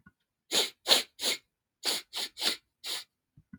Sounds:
Sniff